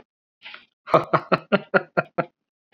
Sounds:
Laughter